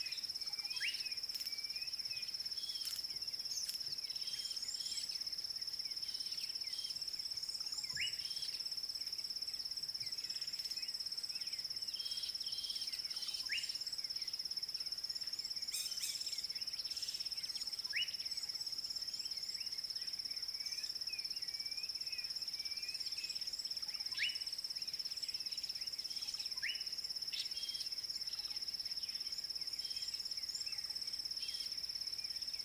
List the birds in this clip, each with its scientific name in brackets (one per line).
Red-cheeked Cordonbleu (Uraeginthus bengalus)
D'Arnaud's Barbet (Trachyphonus darnaudii)
Klaas's Cuckoo (Chrysococcyx klaas)
White-rumped Shrike (Eurocephalus ruppelli)
Slate-colored Boubou (Laniarius funebris)